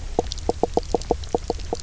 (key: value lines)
label: biophony, knock croak
recorder: SoundTrap 300